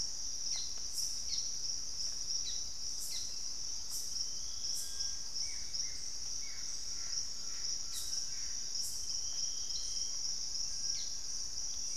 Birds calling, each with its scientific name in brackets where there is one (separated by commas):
Collared Trogon (Trogon collaris), Gray Antbird (Cercomacra cinerascens), Buff-throated Woodcreeper (Xiphorhynchus guttatus), Little Tinamou (Crypturellus soui)